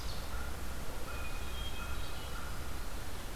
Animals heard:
American Crow (Corvus brachyrhynchos), Hermit Thrush (Catharus guttatus)

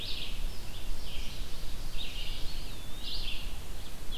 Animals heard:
Red-eyed Vireo (Vireo olivaceus), Eastern Wood-Pewee (Contopus virens), Ovenbird (Seiurus aurocapilla)

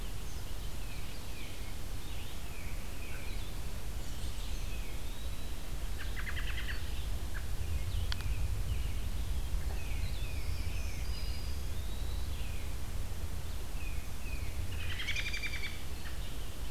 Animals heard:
Tufted Titmouse (Baeolophus bicolor), American Robin (Turdus migratorius), Black-throated Green Warbler (Setophaga virens), Eastern Wood-Pewee (Contopus virens), Red-eyed Vireo (Vireo olivaceus)

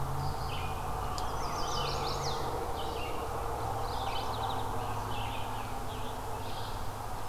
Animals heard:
Chestnut-sided Warbler (Setophaga pensylvanica), Rose-breasted Grosbeak (Pheucticus ludovicianus), Mourning Warbler (Geothlypis philadelphia), Red-eyed Vireo (Vireo olivaceus), Scarlet Tanager (Piranga olivacea)

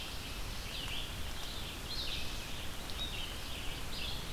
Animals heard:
Red-eyed Vireo (Vireo olivaceus)

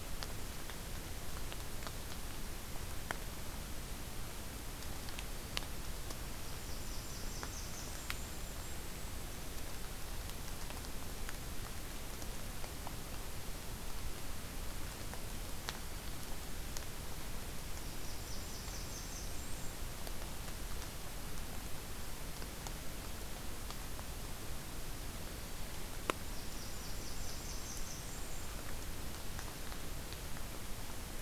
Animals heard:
Golden-crowned Kinglet (Regulus satrapa), Blackburnian Warbler (Setophaga fusca), Black-throated Green Warbler (Setophaga virens)

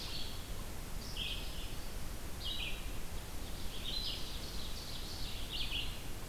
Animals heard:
Red-eyed Vireo (Vireo olivaceus), Ovenbird (Seiurus aurocapilla), Black-throated Green Warbler (Setophaga virens)

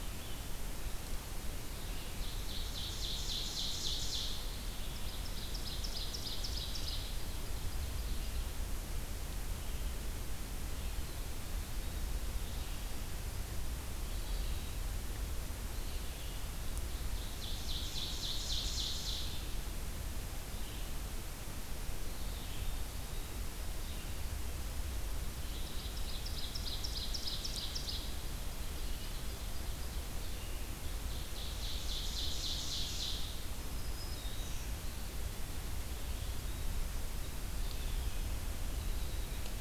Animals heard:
Ovenbird (Seiurus aurocapilla), Black-throated Green Warbler (Setophaga virens), Red-eyed Vireo (Vireo olivaceus)

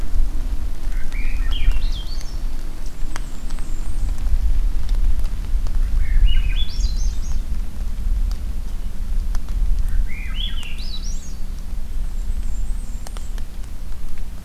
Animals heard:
Blackburnian Warbler (Setophaga fusca), Black-throated Green Warbler (Setophaga virens), Swainson's Thrush (Catharus ustulatus)

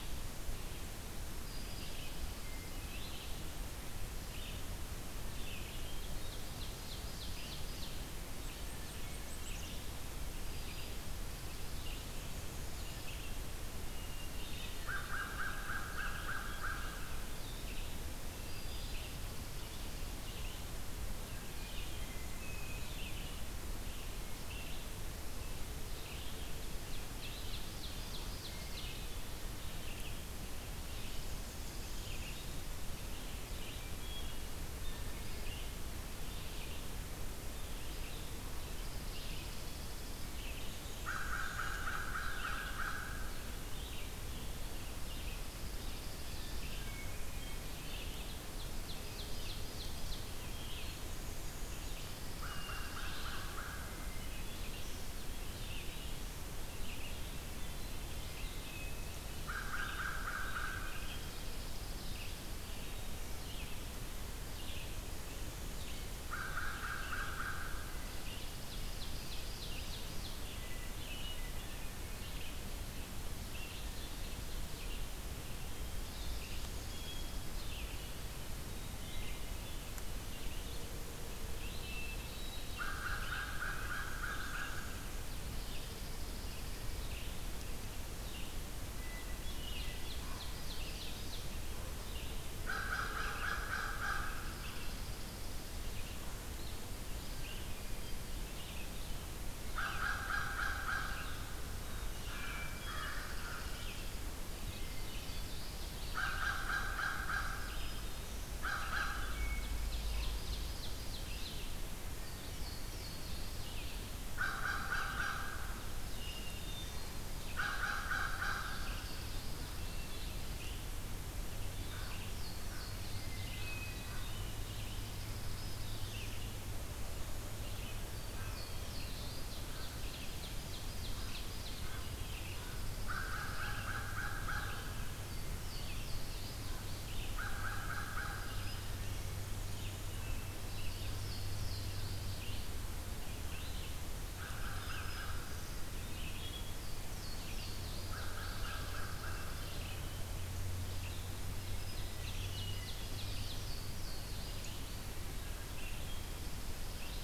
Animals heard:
Red-eyed Vireo (Vireo olivaceus), American Crow (Corvus brachyrhynchos), Chipping Sparrow (Spizella passerina), Black-and-white Warbler (Mniotilta varia), Louisiana Waterthrush (Parkesia motacilla), Ovenbird (Seiurus aurocapilla), Black-throated Green Warbler (Setophaga virens), Black-capped Chickadee (Poecile atricapillus), Great Crested Flycatcher (Myiarchus crinitus), Hermit Thrush (Catharus guttatus)

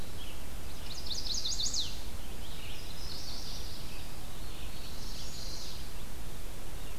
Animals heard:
Chestnut-sided Warbler (Setophaga pensylvanica), Yellow-rumped Warbler (Setophaga coronata), Red-eyed Vireo (Vireo olivaceus), Black-throated Blue Warbler (Setophaga caerulescens)

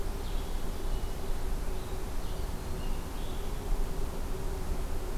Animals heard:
Blue-headed Vireo (Vireo solitarius)

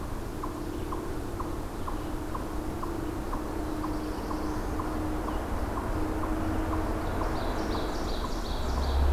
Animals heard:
Black-throated Blue Warbler (Setophaga caerulescens), Ovenbird (Seiurus aurocapilla), Eastern Chipmunk (Tamias striatus)

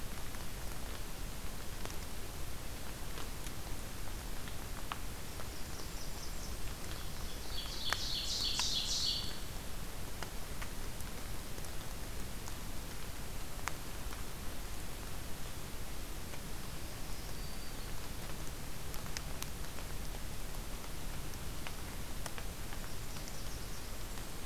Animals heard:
Black-throated Green Warbler (Setophaga virens), Ovenbird (Seiurus aurocapilla), Blackburnian Warbler (Setophaga fusca)

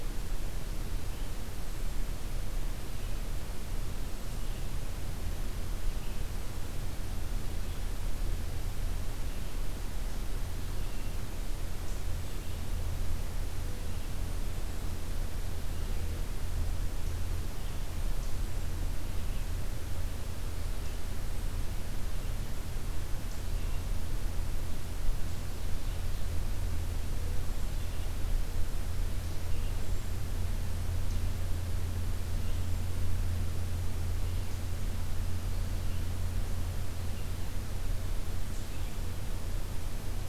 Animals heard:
Hermit Thrush (Catharus guttatus), Ovenbird (Seiurus aurocapilla), Red-eyed Vireo (Vireo olivaceus)

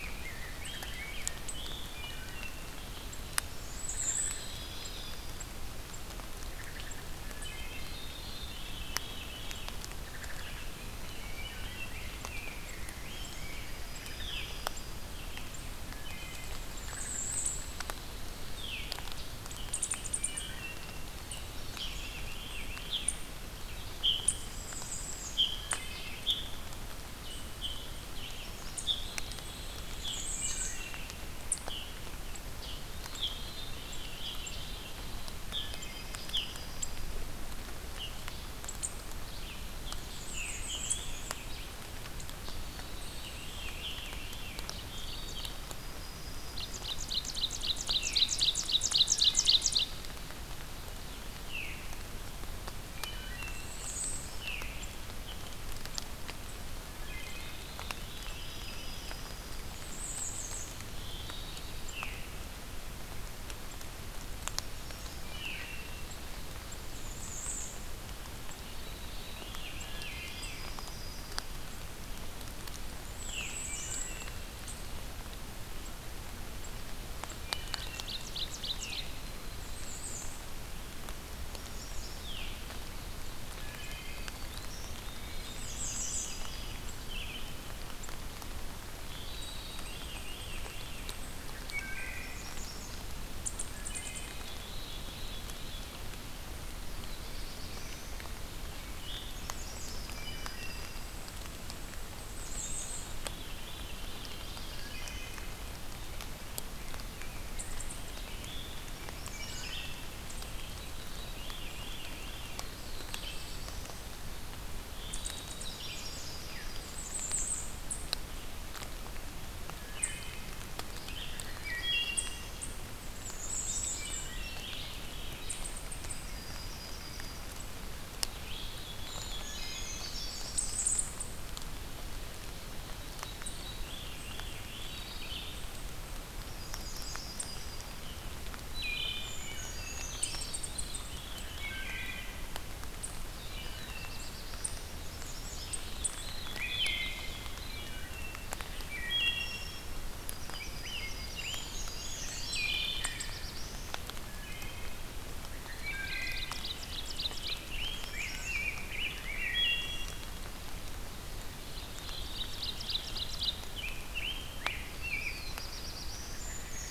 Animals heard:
Black-throated Green Warbler (Setophaga virens), Red-eyed Vireo (Vireo olivaceus), Bay-breasted Warbler (Setophaga castanea), Wood Thrush (Hylocichla mustelina), Yellow-rumped Warbler (Setophaga coronata), Ovenbird (Seiurus aurocapilla), Rose-breasted Grosbeak (Pheucticus ludovicianus), unknown mammal, Black-throated Blue Warbler (Setophaga caerulescens), Veery (Catharus fuscescens), Brown Creeper (Certhia americana)

